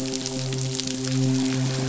{"label": "biophony, midshipman", "recorder": "SoundTrap 500"}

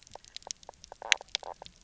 {"label": "biophony, knock croak", "recorder": "SoundTrap 300"}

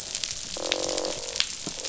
{"label": "biophony, croak", "recorder": "SoundTrap 500"}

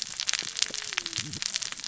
{"label": "biophony, cascading saw", "recorder": "SoundTrap 600 or HydroMoth"}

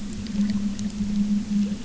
{"label": "anthrophony, boat engine", "recorder": "SoundTrap 300"}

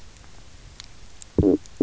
{"label": "biophony, stridulation", "recorder": "SoundTrap 300"}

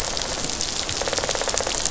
{"label": "biophony, rattle response", "recorder": "SoundTrap 500"}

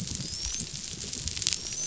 {"label": "biophony, dolphin", "recorder": "SoundTrap 500"}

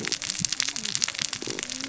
{"label": "biophony, cascading saw", "recorder": "SoundTrap 600 or HydroMoth"}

